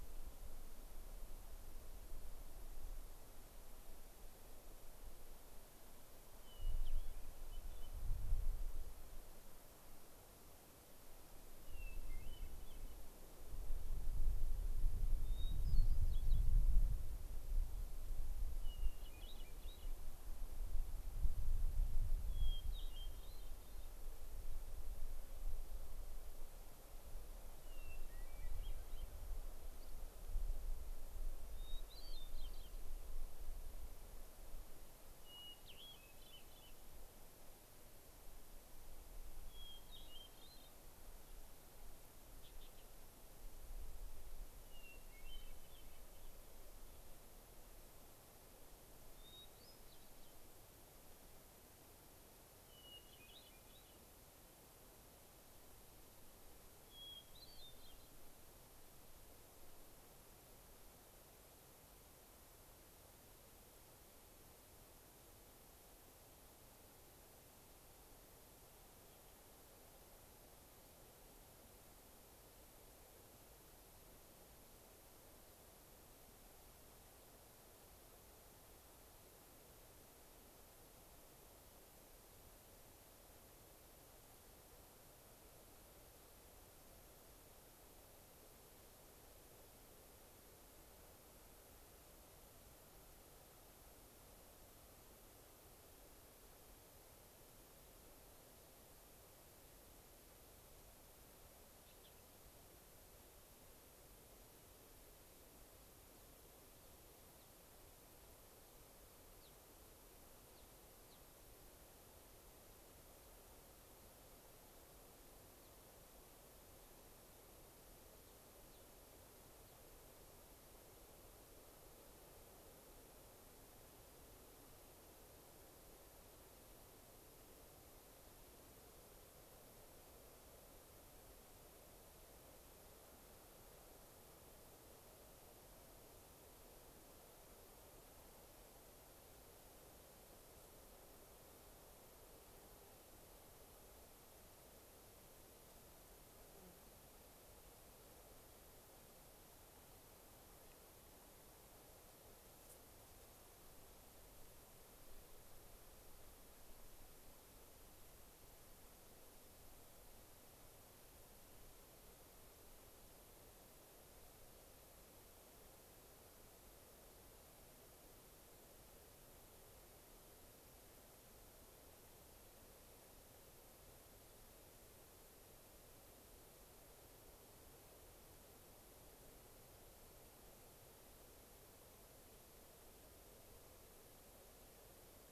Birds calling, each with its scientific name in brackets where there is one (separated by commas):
unidentified bird, Dusky Flycatcher (Empidonax oberholseri), Hermit Thrush (Catharus guttatus), Gray-crowned Rosy-Finch (Leucosticte tephrocotis)